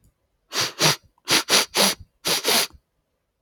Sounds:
Sniff